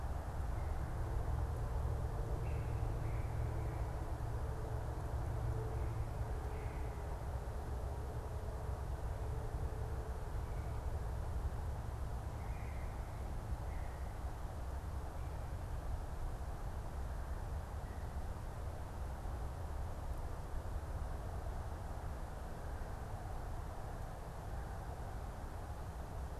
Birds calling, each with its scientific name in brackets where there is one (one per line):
unidentified bird